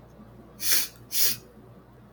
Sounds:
Sniff